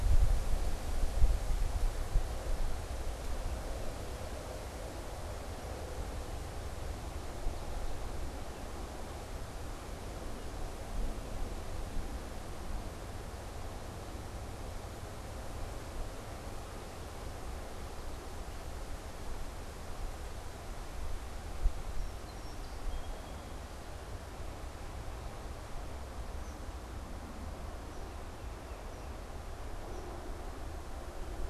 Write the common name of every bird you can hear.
Song Sparrow, unidentified bird